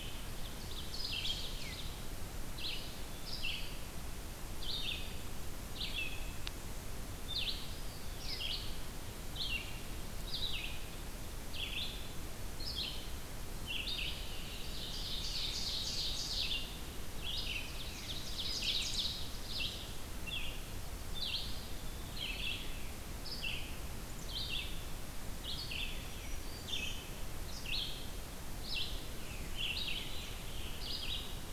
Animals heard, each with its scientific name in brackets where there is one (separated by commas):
Black-throated Green Warbler (Setophaga virens), Red-eyed Vireo (Vireo olivaceus), Scarlet Tanager (Piranga olivacea), Ovenbird (Seiurus aurocapilla), Eastern Wood-Pewee (Contopus virens)